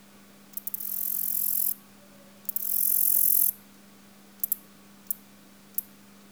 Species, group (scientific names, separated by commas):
Orchelimum nigripes, Orthoptera